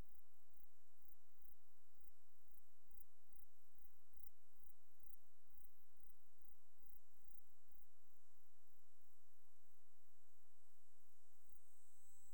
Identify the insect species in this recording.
Platycleis sabulosa